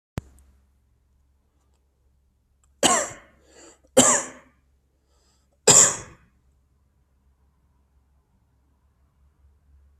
{"expert_labels": [{"quality": "ok", "cough_type": "dry", "dyspnea": false, "wheezing": false, "stridor": false, "choking": false, "congestion": false, "nothing": true, "diagnosis": "healthy cough", "severity": "pseudocough/healthy cough"}], "age": 31, "gender": "male", "respiratory_condition": false, "fever_muscle_pain": false, "status": "healthy"}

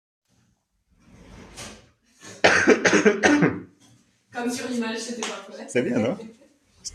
{"expert_labels": [{"quality": "good", "cough_type": "dry", "dyspnea": false, "wheezing": false, "stridor": false, "choking": false, "congestion": false, "nothing": true, "diagnosis": "healthy cough", "severity": "pseudocough/healthy cough"}], "age": 27, "gender": "male", "respiratory_condition": false, "fever_muscle_pain": false, "status": "symptomatic"}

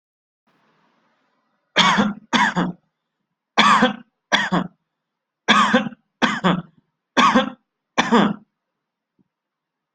{"expert_labels": [{"quality": "good", "cough_type": "dry", "dyspnea": false, "wheezing": false, "stridor": false, "choking": false, "congestion": false, "nothing": true, "diagnosis": "upper respiratory tract infection", "severity": "mild"}], "age": 28, "gender": "male", "respiratory_condition": false, "fever_muscle_pain": false, "status": "healthy"}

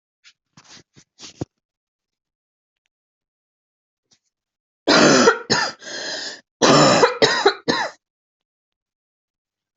{"expert_labels": [{"quality": "good", "cough_type": "dry", "dyspnea": false, "wheezing": false, "stridor": false, "choking": false, "congestion": false, "nothing": true, "diagnosis": "lower respiratory tract infection", "severity": "mild"}], "age": 35, "gender": "female", "respiratory_condition": true, "fever_muscle_pain": false, "status": "symptomatic"}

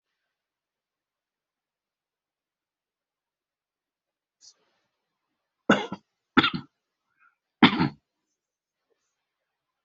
{"expert_labels": [{"quality": "ok", "cough_type": "dry", "dyspnea": false, "wheezing": false, "stridor": false, "choking": false, "congestion": false, "nothing": true, "diagnosis": "COVID-19", "severity": "mild"}], "age": 50, "gender": "male", "respiratory_condition": true, "fever_muscle_pain": false, "status": "COVID-19"}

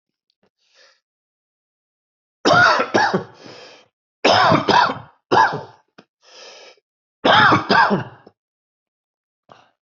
{"expert_labels": [{"quality": "good", "cough_type": "dry", "dyspnea": false, "wheezing": false, "stridor": false, "choking": false, "congestion": false, "nothing": true, "diagnosis": "upper respiratory tract infection", "severity": "mild"}], "age": 55, "gender": "male", "respiratory_condition": false, "fever_muscle_pain": true, "status": "symptomatic"}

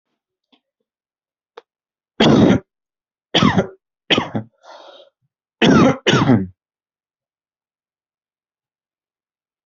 {"expert_labels": [{"quality": "poor", "cough_type": "wet", "dyspnea": false, "wheezing": false, "stridor": false, "choking": false, "congestion": false, "nothing": true, "diagnosis": "lower respiratory tract infection", "severity": "mild"}, {"quality": "good", "cough_type": "dry", "dyspnea": false, "wheezing": false, "stridor": false, "choking": false, "congestion": false, "nothing": true, "diagnosis": "COVID-19", "severity": "unknown"}, {"quality": "good", "cough_type": "wet", "dyspnea": false, "wheezing": false, "stridor": false, "choking": false, "congestion": false, "nothing": true, "diagnosis": "upper respiratory tract infection", "severity": "mild"}, {"quality": "good", "cough_type": "dry", "dyspnea": false, "wheezing": false, "stridor": false, "choking": false, "congestion": false, "nothing": true, "diagnosis": "upper respiratory tract infection", "severity": "mild"}], "age": 30, "gender": "male", "respiratory_condition": false, "fever_muscle_pain": false, "status": "healthy"}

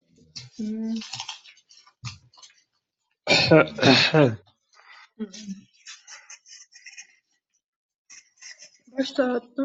{"expert_labels": [{"quality": "poor", "cough_type": "dry", "dyspnea": false, "wheezing": false, "stridor": false, "choking": false, "congestion": false, "nothing": true, "diagnosis": "healthy cough", "severity": "pseudocough/healthy cough"}], "gender": "female", "respiratory_condition": false, "fever_muscle_pain": false, "status": "COVID-19"}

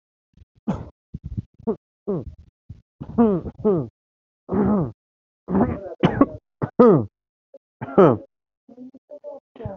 {"expert_labels": [{"quality": "poor", "cough_type": "unknown", "dyspnea": false, "wheezing": false, "stridor": false, "choking": false, "congestion": false, "nothing": true, "diagnosis": "healthy cough", "severity": "pseudocough/healthy cough"}], "age": 23, "gender": "other", "respiratory_condition": true, "fever_muscle_pain": false, "status": "symptomatic"}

